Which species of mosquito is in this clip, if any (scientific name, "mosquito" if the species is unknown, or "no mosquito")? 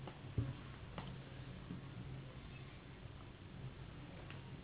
Anopheles gambiae s.s.